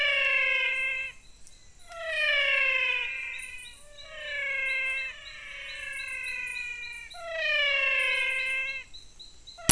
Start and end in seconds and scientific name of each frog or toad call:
0.0	9.0	Physalaemus albonotatus
0.0	9.7	Adenomera diptyx